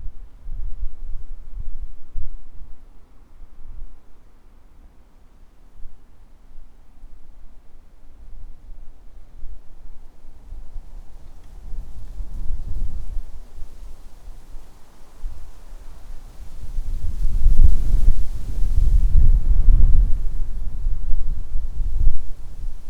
Is this the sound of waves?
yes